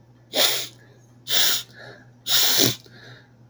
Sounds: Sniff